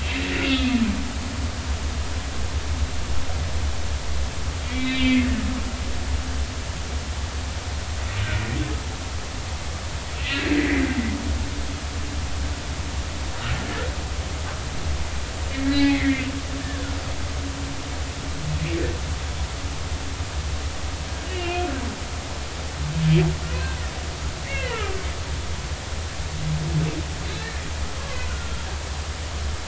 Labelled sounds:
0.0	0.8	humpback whale, 2.0 to 2.8 kHz
4.7	5.3	humpback whale, 1.9 to 3.7 kHz
10.2	10.8	humpback whale, 1.8 to 2.9 kHz
15.5	16.2	humpback whale, 1.6 to 3.4 kHz
21.2	21.7	humpback whale, 2.4 to 3.0 kHz
23.5	23.8	humpback whale, 2.5 to 2.7 kHz
24.5	24.9	humpback whale, 1.1 to 3.3 kHz
27.4	27.6	humpback whale, 1.7 to 1.9 kHz
28.0	28.2	humpback whale, 0.99 to 1.2 kHz
29.3	29.6	humpback whale, 1.3 to 1.5 kHz

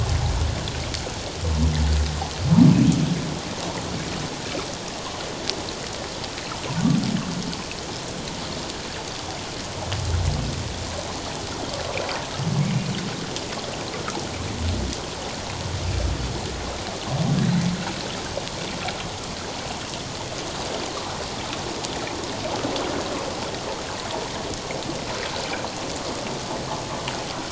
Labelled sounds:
12.6	12.9	humpback whale, 2.1 to 2.5 kHz

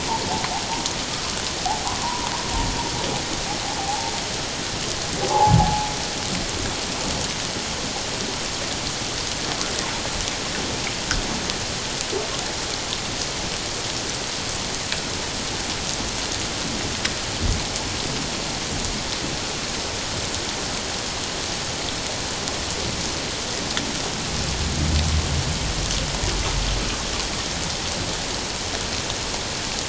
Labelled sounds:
2.0	2.3	humpback whale, 0.88 to 1.1 kHz
3.8	4.1	humpback whale, 0.78 to 0.94 kHz
5.3	5.9	humpback whale, 0.78 to 0.97 kHz

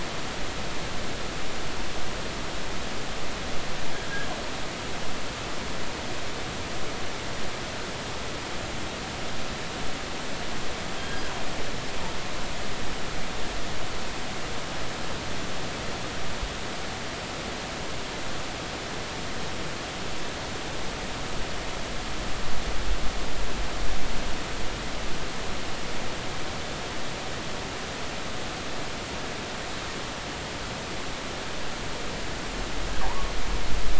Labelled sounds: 11.0	11.2	killer whale, northern resident, G clan, GG subclan, call N28, 3.1 to 3.3 kHz
33.0	33.3	killer whale, northern resident, G clan, GI subclan, call N23i, 0.80 to 1.2 kHz

